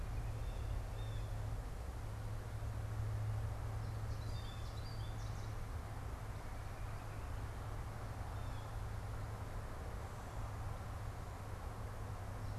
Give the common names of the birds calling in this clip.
Northern Flicker, Blue Jay, American Goldfinch